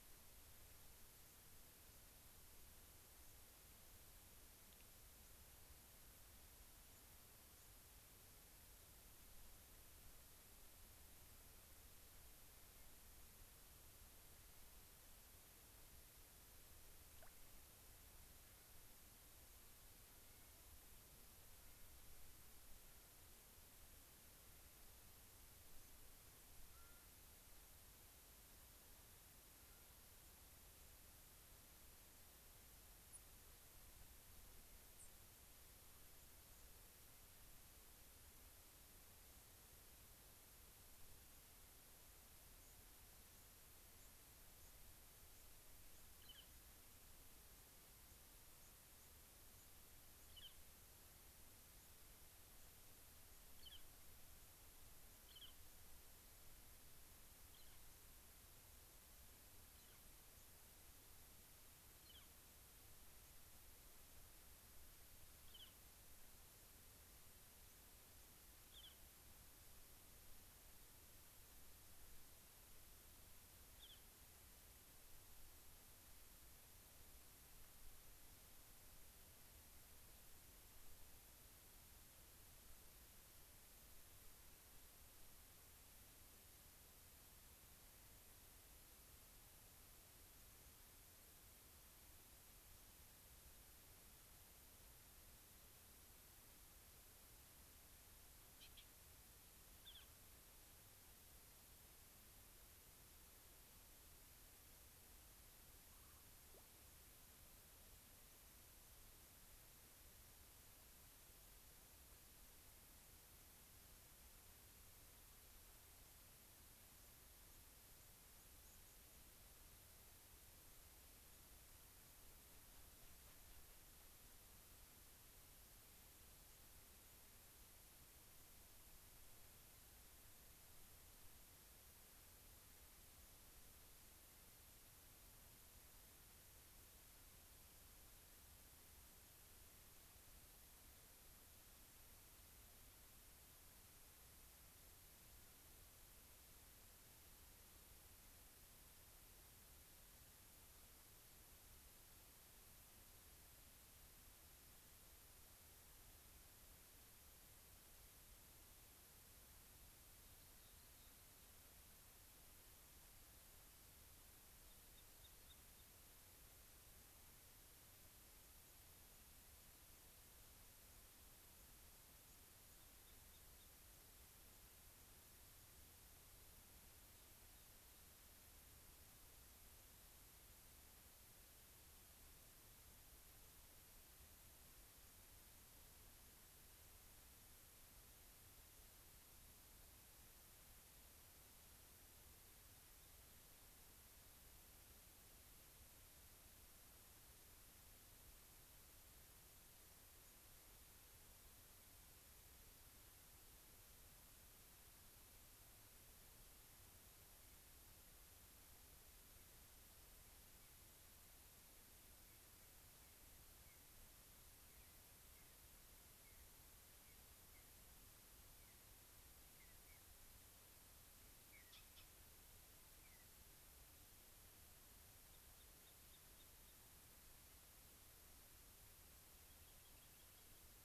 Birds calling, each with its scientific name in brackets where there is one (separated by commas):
unidentified bird, Northern Flicker (Colaptes auratus), Clark's Nutcracker (Nucifraga columbiana), Rock Wren (Salpinctes obsoletus), Mountain Bluebird (Sialia currucoides), White-crowned Sparrow (Zonotrichia leucophrys)